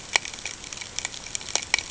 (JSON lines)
{"label": "ambient", "recorder": "HydroMoth"}